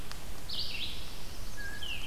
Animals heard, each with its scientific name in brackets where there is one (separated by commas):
Chestnut-sided Warbler (Setophaga pensylvanica), Red-eyed Vireo (Vireo olivaceus), Blue Jay (Cyanocitta cristata)